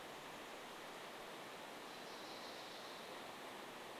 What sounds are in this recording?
Orange-crowned Warbler song